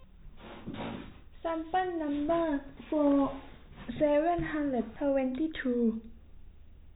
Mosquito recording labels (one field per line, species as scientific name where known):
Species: no mosquito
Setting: cup